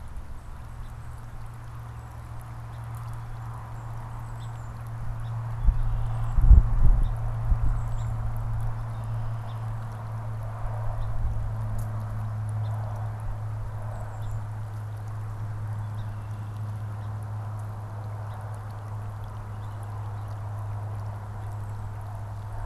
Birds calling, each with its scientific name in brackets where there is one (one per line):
Golden-crowned Kinglet (Regulus satrapa)
Song Sparrow (Melospiza melodia)
Red-winged Blackbird (Agelaius phoeniceus)